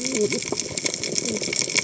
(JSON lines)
{"label": "biophony, cascading saw", "recorder": "HydroMoth"}